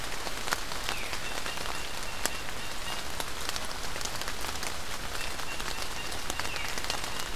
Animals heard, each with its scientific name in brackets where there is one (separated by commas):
White-breasted Nuthatch (Sitta carolinensis), Veery (Catharus fuscescens)